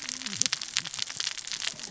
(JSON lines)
{"label": "biophony, cascading saw", "recorder": "SoundTrap 600 or HydroMoth"}